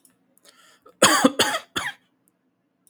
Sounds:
Cough